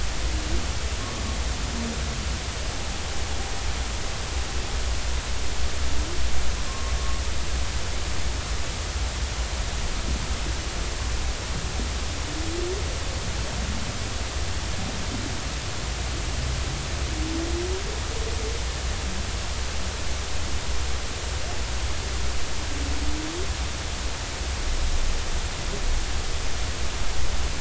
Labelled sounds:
6.7	6.9	humpback whale, 1.0 to 1.1 kHz

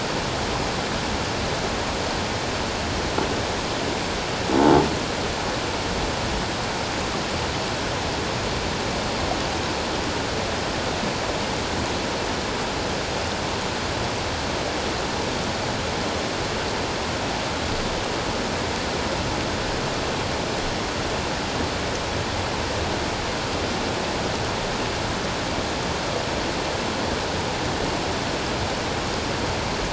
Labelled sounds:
4.6	4.9	croaking sound likely from a nearby submerged object, 0.81 to 0.94 kHz

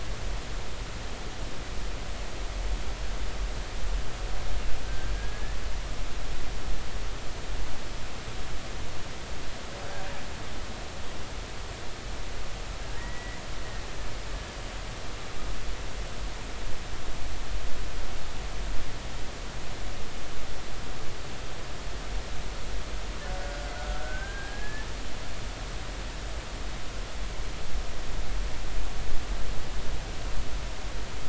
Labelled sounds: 4.9	5.6	killer whale, Bigg's (transient), 1.5 to 2.0 kHz
13.0	13.4	killer whale, Bigg's (transient), 1.8 to 2.1 kHz
24.0	24.9	killer whale, Bigg's (transient), 1.4 to 1.9 kHz

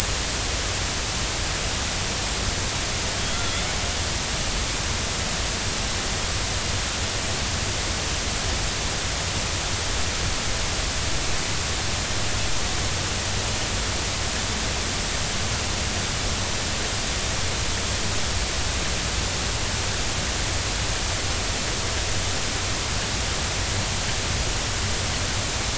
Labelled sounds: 3.2	3.7	killer whale, Bigg's (transient), 1.3 to 3.6 kHz

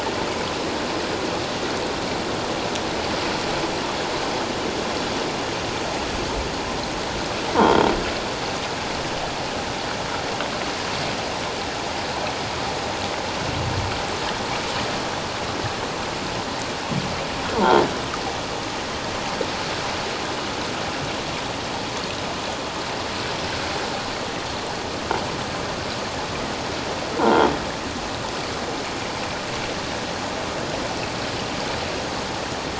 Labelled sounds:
7.6	7.9	croaking sound likely from a nearby submerged object, 3.1 to 3.3 kHz
27.2	27.5	croaking sound likely from a nearby submerged object, 0.78 to 1.5 kHz

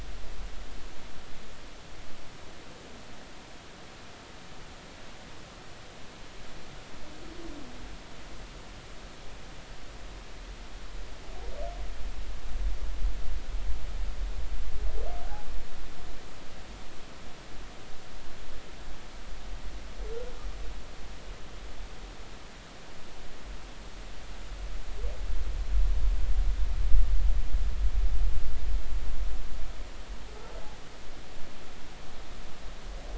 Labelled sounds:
15.2	15.5	humpback whale, 0.80 to 0.90 kHz

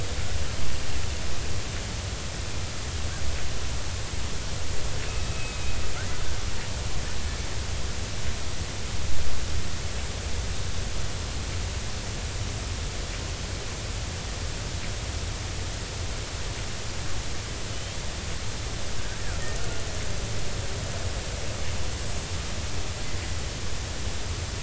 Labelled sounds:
5.3	5.6	killer whale, Bigg's (transient), 2.5 to 2.6 kHz
17.7	18.0	killer whale, Bigg's (transient), 2.9 to 3.4 kHz
22.1	22.3	killer whale, Bigg's (transient), 6.5 to 6.7 kHz

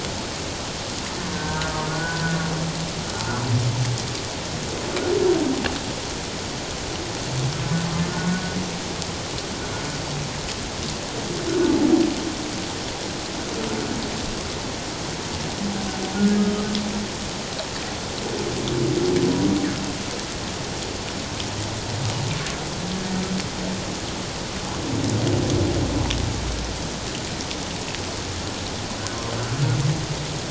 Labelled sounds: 1.3	2.4	humpback whale, 1.4 to 1.6 kHz
8.1	8.4	humpback whale, 1.4 to 1.5 kHz

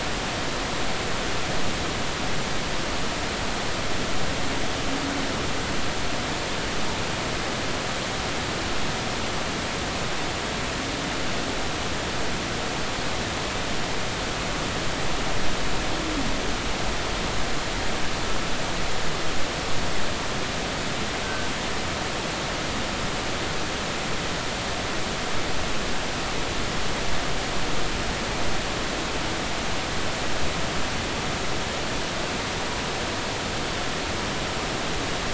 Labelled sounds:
21.2	21.5	humpback whale, 1.5 to 1.6 kHz

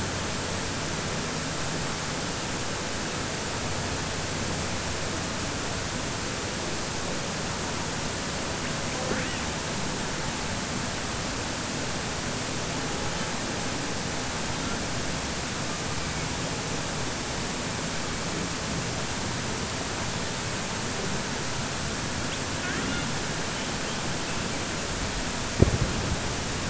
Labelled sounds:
22.5	23.1	killer whale, southern resident, 1.1 to 3.6 kHz

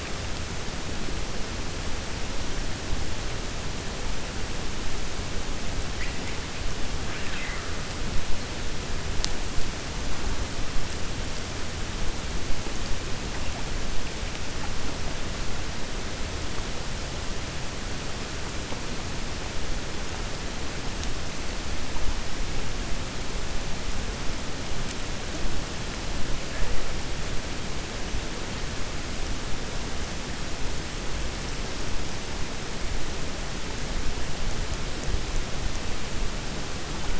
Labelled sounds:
7.0	7.7	killer whale, 1.2 to 3.7 kHz

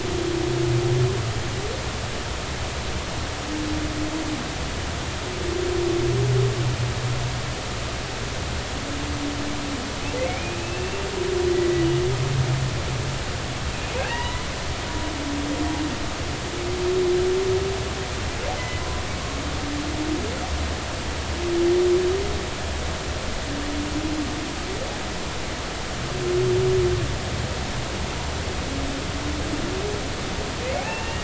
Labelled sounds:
10.2	11.1	humpback whale, 2.0 to 2.8 kHz
13.9	14.5	humpback whale, 0.80 to 3.0 kHz
18.6	18.8	humpback whale, 2.0 to 2.1 kHz
30.8	31.2	humpback whale, 2.5 to 2.9 kHz

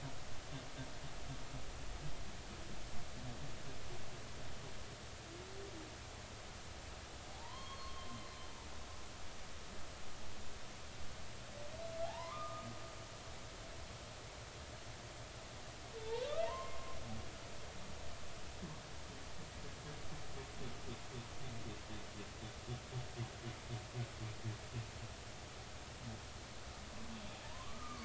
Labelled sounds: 7.3	8.4	humpback whale, 0.80 to 4.5 kHz
12.0	12.7	humpback whale, 0.80 to 1.3 kHz
16.0	17.0	humpback whale, 0.83 to 2.2 kHz
27.4	28.0	humpback whale, 0.86 to 1.3 kHz

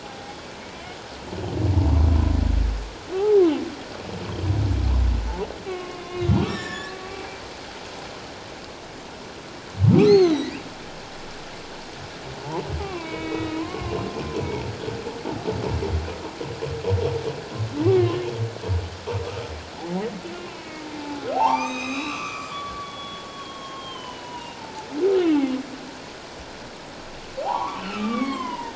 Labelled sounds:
0.6	0.8	humpback whale, 2.1 to 2.4 kHz
3.1	3.4	humpback whale, 0.78 to 0.91 kHz
5.7	7.0	humpback whale, 1.0 to 7.2 kHz
10.0	10.6	humpback whale, 1.9 to 6.6 kHz
12.8	14.0	humpback whale, 0.94 to 2.9 kHz
17.9	18.2	humpback whale, 0.97 to 1.2 kHz
19.2	20.0	humpback whale, 0.78 to 1.4 kHz
20.4	25.4	humpback whale, 0.78 to 7.7 kHz
27.4	28.7	humpback whale, 0.78 to 3.5 kHz

